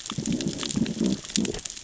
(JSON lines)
{"label": "biophony, growl", "recorder": "SoundTrap 600 or HydroMoth"}